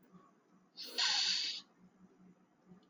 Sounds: Sniff